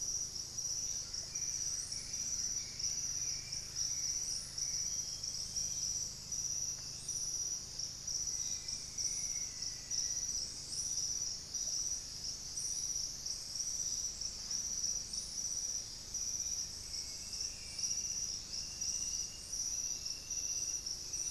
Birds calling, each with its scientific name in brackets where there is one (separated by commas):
Bluish-fronted Jacamar (Galbula cyanescens), Buff-breasted Wren (Cantorchilus leucotis), Hauxwell's Thrush (Turdus hauxwelli), Black-faced Antthrush (Formicarius analis), Russet-backed Oropendola (Psarocolius angustifrons)